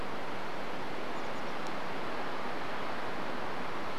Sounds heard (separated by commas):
Chestnut-backed Chickadee call